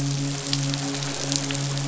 {"label": "biophony, midshipman", "recorder": "SoundTrap 500"}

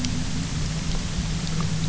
{"label": "anthrophony, boat engine", "recorder": "SoundTrap 300"}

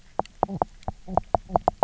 {"label": "biophony, knock croak", "recorder": "SoundTrap 300"}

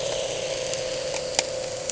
{"label": "anthrophony, boat engine", "recorder": "HydroMoth"}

